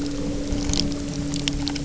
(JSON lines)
{"label": "anthrophony, boat engine", "recorder": "SoundTrap 300"}